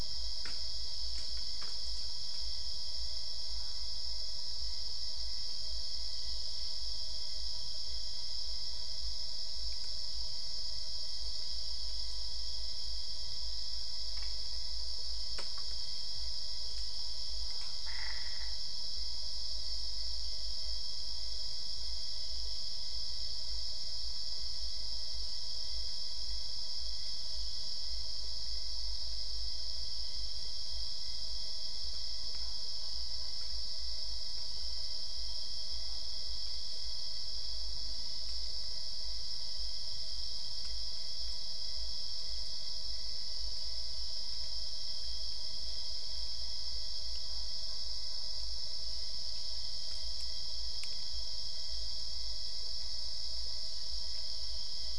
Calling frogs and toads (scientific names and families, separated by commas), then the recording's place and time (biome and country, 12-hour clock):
Boana albopunctata (Hylidae)
Cerrado, Brazil, 1:45am